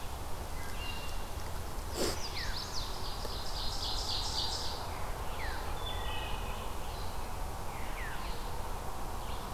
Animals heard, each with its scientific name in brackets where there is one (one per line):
Wood Thrush (Hylocichla mustelina)
Chestnut-sided Warbler (Setophaga pensylvanica)
Veery (Catharus fuscescens)
Ovenbird (Seiurus aurocapilla)